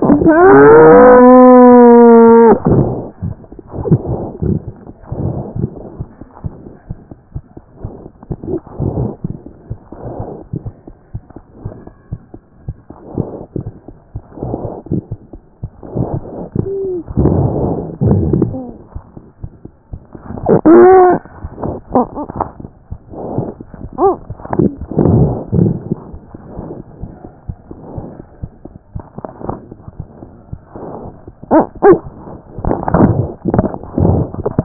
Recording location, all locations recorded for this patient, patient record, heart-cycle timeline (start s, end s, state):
aortic valve (AV)
aortic valve (AV)+mitral valve (MV)
#Age: Child
#Sex: Female
#Height: 80.0 cm
#Weight: 9.1 kg
#Pregnancy status: False
#Murmur: Absent
#Murmur locations: nan
#Most audible location: nan
#Systolic murmur timing: nan
#Systolic murmur shape: nan
#Systolic murmur grading: nan
#Systolic murmur pitch: nan
#Systolic murmur quality: nan
#Diastolic murmur timing: nan
#Diastolic murmur shape: nan
#Diastolic murmur grading: nan
#Diastolic murmur pitch: nan
#Diastolic murmur quality: nan
#Outcome: Abnormal
#Campaign: 2014 screening campaign
0.00	9.56	unannotated
9.56	9.72	diastole
9.72	9.82	S1
9.82	9.92	systole
9.92	9.97	S2
9.97	10.20	diastole
10.20	10.28	S1
10.28	10.36	systole
10.36	10.46	S2
10.46	10.68	diastole
10.68	10.72	S1
10.72	10.88	systole
10.88	10.90	S2
10.90	11.16	diastole
11.16	11.24	S1
11.24	11.40	systole
11.40	11.46	S2
11.46	11.66	diastole
11.66	11.74	S1
11.74	11.90	systole
11.90	11.98	S2
11.98	12.12	diastole
12.12	12.22	S1
12.22	12.36	systole
12.36	12.44	S2
12.44	12.66	diastole
12.66	12.74	S1
12.74	12.88	systole
12.88	12.98	S2
12.98	13.16	diastole
13.16	34.64	unannotated